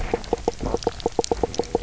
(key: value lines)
label: biophony, knock croak
recorder: SoundTrap 300